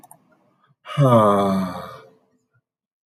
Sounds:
Sigh